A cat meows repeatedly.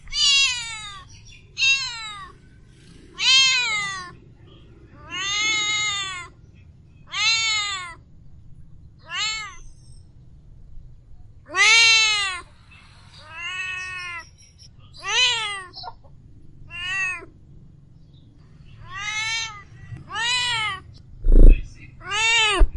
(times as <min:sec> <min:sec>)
0:00.1 0:02.4, 0:03.2 0:04.2, 0:04.9 0:06.4, 0:07.0 0:08.0, 0:09.0 0:10.0, 0:11.4 0:12.5, 0:13.2 0:17.4, 0:18.8 0:20.9, 0:22.0 0:22.8